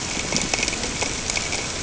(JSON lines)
{"label": "ambient", "recorder": "HydroMoth"}